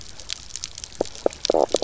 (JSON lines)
{"label": "biophony, knock croak", "recorder": "SoundTrap 300"}